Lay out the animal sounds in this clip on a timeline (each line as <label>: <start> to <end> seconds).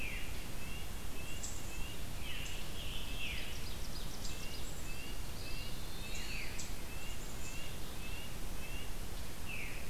Red-breasted Nuthatch (Sitta canadensis): 0.0 to 2.0 seconds
Black-capped Chickadee (Poecile atricapillus): 1.1 to 1.9 seconds
Scarlet Tanager (Piranga olivacea): 2.1 to 3.6 seconds
Veery (Catharus fuscescens): 2.2 to 2.5 seconds
Ovenbird (Seiurus aurocapilla): 2.8 to 4.8 seconds
Veery (Catharus fuscescens): 3.2 to 3.5 seconds
Red-breasted Nuthatch (Sitta canadensis): 4.2 to 9.2 seconds
Eastern Wood-Pewee (Contopus virens): 5.2 to 6.6 seconds
Veery (Catharus fuscescens): 6.2 to 6.6 seconds
Black-capped Chickadee (Poecile atricapillus): 6.8 to 7.7 seconds
Veery (Catharus fuscescens): 9.4 to 9.8 seconds